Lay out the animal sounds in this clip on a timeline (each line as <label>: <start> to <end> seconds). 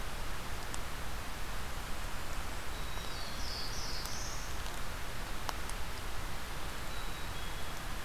Black-capped Chickadee (Poecile atricapillus): 2.4 to 3.8 seconds
Black-throated Blue Warbler (Setophaga caerulescens): 2.6 to 4.5 seconds
Black-capped Chickadee (Poecile atricapillus): 6.8 to 7.8 seconds